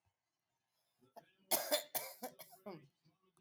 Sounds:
Cough